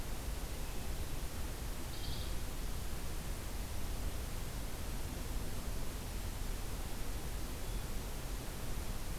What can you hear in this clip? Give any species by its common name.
Red-eyed Vireo